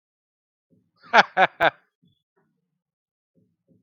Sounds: Laughter